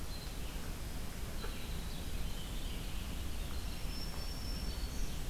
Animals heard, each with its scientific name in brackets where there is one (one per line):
Winter Wren (Troglodytes hiemalis)
Red-eyed Vireo (Vireo olivaceus)
Black-throated Green Warbler (Setophaga virens)